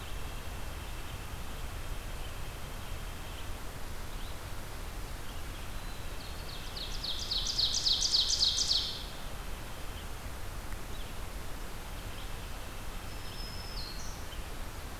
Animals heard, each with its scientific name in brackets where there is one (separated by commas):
Black-throated Blue Warbler (Setophaga caerulescens), Ovenbird (Seiurus aurocapilla), White-breasted Nuthatch (Sitta carolinensis), Black-throated Green Warbler (Setophaga virens), Red-eyed Vireo (Vireo olivaceus)